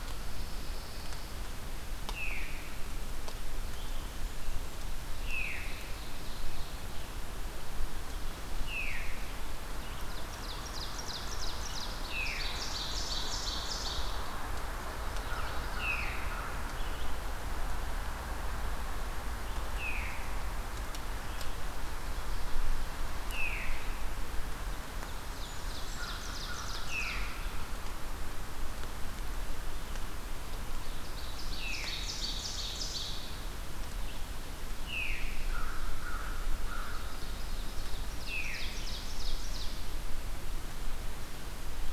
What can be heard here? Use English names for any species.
Pine Warbler, Veery, Red-eyed Vireo, Ovenbird, Blackburnian Warbler, American Crow